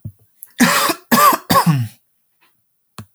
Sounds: Throat clearing